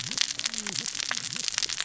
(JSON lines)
{"label": "biophony, cascading saw", "recorder": "SoundTrap 600 or HydroMoth"}